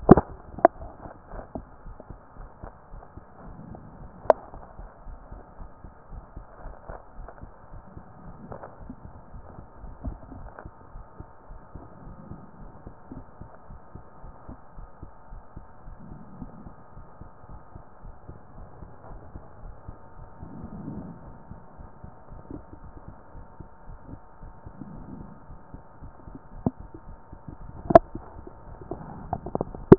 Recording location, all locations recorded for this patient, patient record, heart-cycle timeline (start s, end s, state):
pulmonary valve (PV)
pulmonary valve (PV)+tricuspid valve (TV)+mitral valve (MV)
#Age: Adolescent
#Sex: Female
#Height: nan
#Weight: nan
#Pregnancy status: False
#Murmur: Absent
#Murmur locations: nan
#Most audible location: nan
#Systolic murmur timing: nan
#Systolic murmur shape: nan
#Systolic murmur grading: nan
#Systolic murmur pitch: nan
#Systolic murmur quality: nan
#Diastolic murmur timing: nan
#Diastolic murmur shape: nan
#Diastolic murmur grading: nan
#Diastolic murmur pitch: nan
#Diastolic murmur quality: nan
#Outcome: Normal
#Campaign: 2014 screening campaign
0.00	0.71	unannotated
0.71	0.77	diastole
0.77	0.88	S1
0.88	1.01	systole
1.01	1.11	S2
1.11	1.32	diastole
1.32	1.44	S1
1.44	1.56	systole
1.56	1.66	S2
1.66	1.86	diastole
1.86	1.96	S1
1.96	2.10	systole
2.10	2.18	S2
2.18	2.38	diastole
2.38	2.50	S1
2.50	2.64	systole
2.64	2.72	S2
2.72	2.92	diastole
2.92	3.02	S1
3.02	3.16	systole
3.16	3.26	S2
3.26	3.44	diastole
3.44	3.56	S1
3.56	3.68	systole
3.68	3.78	S2
3.78	4.00	diastole
4.00	4.12	S1
4.12	4.26	systole
4.26	4.36	S2
4.36	4.54	diastole
4.54	4.64	S1
4.64	4.80	systole
4.80	4.88	S2
4.88	5.08	diastole
5.08	5.18	S1
5.18	5.32	systole
5.32	5.42	S2
5.42	5.58	diastole
5.58	5.70	S1
5.70	5.84	systole
5.84	5.92	S2
5.92	6.14	diastole
6.14	6.24	S1
6.24	6.36	systole
6.36	6.46	S2
6.46	6.64	diastole
6.64	6.76	S1
6.76	6.88	systole
6.88	6.98	S2
6.98	7.18	diastole
7.18	7.28	S1
7.28	7.42	systole
7.42	7.52	S2
7.52	7.72	diastole
7.72	7.82	S1
7.82	7.96	systole
7.96	8.04	S2
8.04	8.24	diastole
8.24	8.34	S1
8.34	8.48	systole
8.48	8.60	S2
8.60	8.82	diastole
8.82	29.98	unannotated